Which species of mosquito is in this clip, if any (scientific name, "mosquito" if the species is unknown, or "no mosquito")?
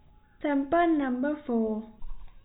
no mosquito